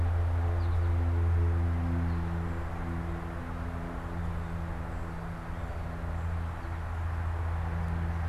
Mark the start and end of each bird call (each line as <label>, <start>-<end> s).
American Goldfinch (Spinus tristis), 0.0-2.8 s